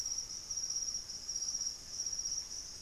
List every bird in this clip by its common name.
Great Antshrike, Plain-winged Antshrike